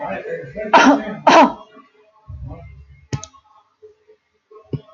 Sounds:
Cough